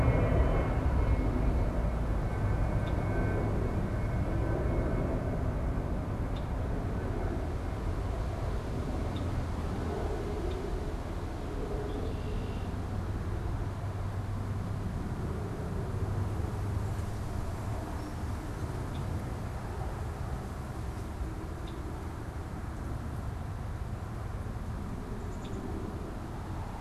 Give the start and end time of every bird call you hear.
2.5s-12.9s: Red-winged Blackbird (Agelaius phoeniceus)
18.6s-25.6s: Red-winged Blackbird (Agelaius phoeniceus)
25.1s-26.0s: Black-capped Chickadee (Poecile atricapillus)

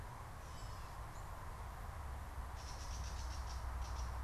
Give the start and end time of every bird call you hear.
0.4s-0.9s: Gray Catbird (Dumetella carolinensis)
2.4s-4.2s: Gray Catbird (Dumetella carolinensis)

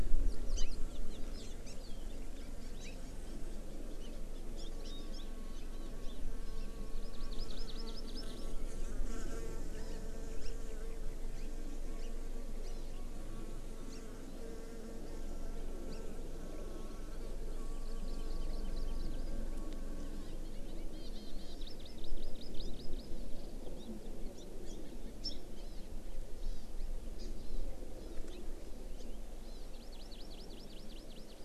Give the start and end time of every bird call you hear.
0.5s-0.7s: Hawaii Amakihi (Chlorodrepanis virens)
1.4s-1.5s: Hawaii Amakihi (Chlorodrepanis virens)
2.4s-2.9s: Hawaii Amakihi (Chlorodrepanis virens)
4.0s-4.1s: Hawaii Amakihi (Chlorodrepanis virens)
4.6s-6.2s: Hawaii Amakihi (Chlorodrepanis virens)
6.9s-8.4s: Hawaii Amakihi (Chlorodrepanis virens)
9.8s-10.0s: Hawaii Amakihi (Chlorodrepanis virens)
10.4s-10.5s: Hawaii Amakihi (Chlorodrepanis virens)
11.4s-11.5s: Hawaii Amakihi (Chlorodrepanis virens)
12.0s-12.1s: Hawaii Amakihi (Chlorodrepanis virens)
12.7s-12.9s: Hawaii Amakihi (Chlorodrepanis virens)
13.9s-14.0s: Hawaii Amakihi (Chlorodrepanis virens)
15.9s-16.0s: Hawaii Amakihi (Chlorodrepanis virens)
17.8s-19.2s: Hawaii Amakihi (Chlorodrepanis virens)
20.9s-23.1s: Hawaii Amakihi (Chlorodrepanis virens)
23.7s-23.9s: Hawaii Amakihi (Chlorodrepanis virens)
24.3s-24.8s: Hawaii Amakihi (Chlorodrepanis virens)
25.2s-25.8s: Hawaii Amakihi (Chlorodrepanis virens)
26.4s-26.7s: Hawaii Amakihi (Chlorodrepanis virens)
27.2s-27.6s: Hawaii Amakihi (Chlorodrepanis virens)
28.0s-28.4s: Hawaii Amakihi (Chlorodrepanis virens)
29.4s-31.4s: Hawaii Amakihi (Chlorodrepanis virens)

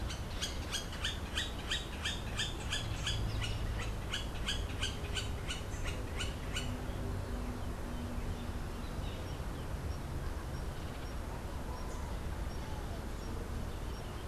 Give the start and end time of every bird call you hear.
0.0s-6.9s: Hoffmann's Woodpecker (Melanerpes hoffmannii)

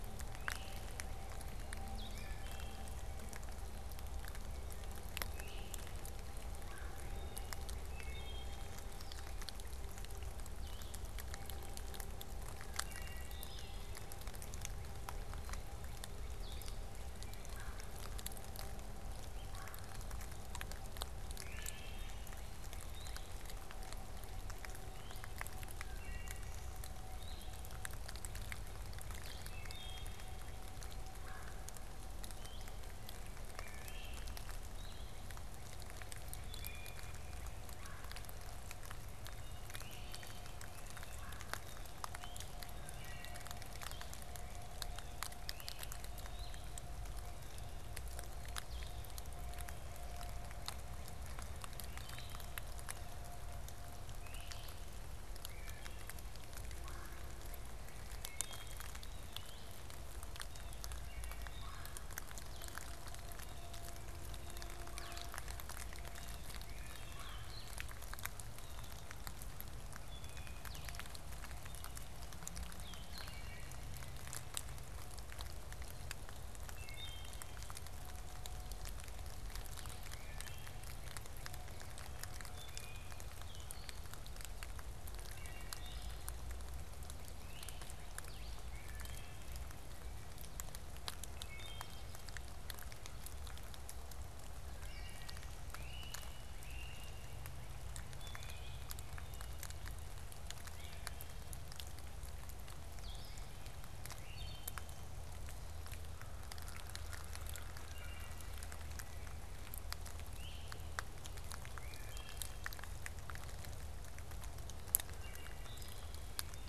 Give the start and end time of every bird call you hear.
0.0s-14.1s: Wood Thrush (Hylocichla mustelina)
0.2s-0.9s: Great Crested Flycatcher (Myiarchus crinitus)
1.8s-2.2s: Blue-headed Vireo (Vireo solitarius)
5.2s-5.8s: Great Crested Flycatcher (Myiarchus crinitus)
6.6s-7.1s: Red-bellied Woodpecker (Melanerpes carolinus)
8.9s-11.2s: Blue-headed Vireo (Vireo solitarius)
13.9s-17.3s: Northern Cardinal (Cardinalis cardinalis)
16.2s-16.8s: Blue-headed Vireo (Vireo solitarius)
17.4s-19.8s: Red-bellied Woodpecker (Melanerpes carolinus)
21.2s-73.9s: Wood Thrush (Hylocichla mustelina)
22.8s-23.3s: Blue-headed Vireo (Vireo solitarius)
27.1s-27.6s: Blue-headed Vireo (Vireo solitarius)
29.1s-29.6s: Blue-headed Vireo (Vireo solitarius)
31.1s-31.8s: Red-bellied Woodpecker (Melanerpes carolinus)
32.1s-73.5s: Blue-headed Vireo (Vireo solitarius)
33.4s-34.5s: Great Crested Flycatcher (Myiarchus crinitus)
37.6s-38.1s: Red-bellied Woodpecker (Melanerpes carolinus)
39.4s-40.4s: Great Crested Flycatcher (Myiarchus crinitus)
41.0s-41.7s: Red-bellied Woodpecker (Melanerpes carolinus)
45.2s-46.0s: Great Crested Flycatcher (Myiarchus crinitus)
54.1s-54.8s: Great Crested Flycatcher (Myiarchus crinitus)
56.7s-57.2s: Red-bellied Woodpecker (Melanerpes carolinus)
58.2s-60.9s: Blue Jay (Cyanocitta cristata)
61.6s-62.2s: Red-bellied Woodpecker (Melanerpes carolinus)
64.8s-65.3s: Red-bellied Woodpecker (Melanerpes carolinus)
68.4s-69.2s: Blue Jay (Cyanocitta cristata)
76.5s-116.7s: Wood Thrush (Hylocichla mustelina)
79.5s-116.7s: Blue-headed Vireo (Vireo solitarius)
87.4s-88.2s: Great Crested Flycatcher (Myiarchus crinitus)
95.6s-97.5s: Great Crested Flycatcher (Myiarchus crinitus)
104.1s-104.9s: Great Crested Flycatcher (Myiarchus crinitus)
110.3s-110.9s: Great Crested Flycatcher (Myiarchus crinitus)

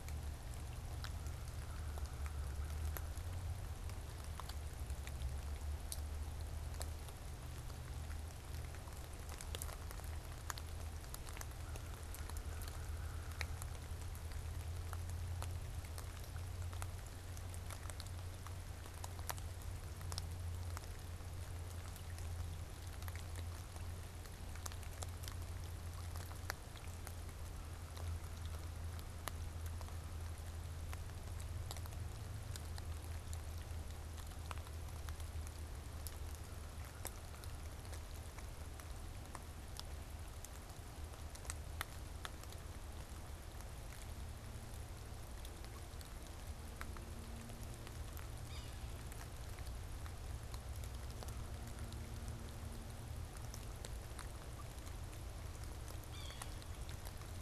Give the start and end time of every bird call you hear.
0.0s-3.2s: American Crow (Corvus brachyrhynchos)
11.2s-14.1s: American Crow (Corvus brachyrhynchos)
48.3s-49.2s: Yellow-bellied Sapsucker (Sphyrapicus varius)
56.0s-56.7s: Yellow-bellied Sapsucker (Sphyrapicus varius)

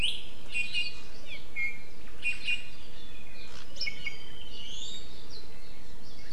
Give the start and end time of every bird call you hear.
0.5s-1.1s: Iiwi (Drepanis coccinea)
1.5s-2.8s: Iiwi (Drepanis coccinea)
3.7s-4.5s: Iiwi (Drepanis coccinea)

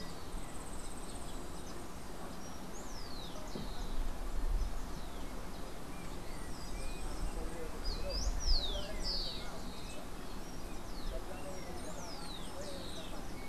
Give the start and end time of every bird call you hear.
0.2s-1.6s: Yellow-faced Grassquit (Tiaris olivaceus)
7.7s-13.4s: Rufous-collared Sparrow (Zonotrichia capensis)

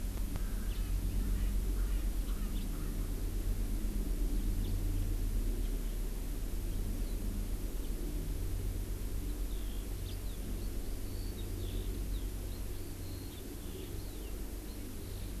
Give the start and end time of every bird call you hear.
0.3s-3.1s: Erckel's Francolin (Pternistis erckelii)
0.7s-0.8s: House Finch (Haemorhous mexicanus)
2.2s-2.7s: House Finch (Haemorhous mexicanus)
4.6s-4.7s: House Finch (Haemorhous mexicanus)
5.6s-5.7s: House Finch (Haemorhous mexicanus)
7.8s-7.9s: House Finch (Haemorhous mexicanus)
9.2s-15.4s: Eurasian Skylark (Alauda arvensis)

